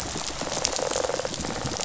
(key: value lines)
label: biophony, rattle response
recorder: SoundTrap 500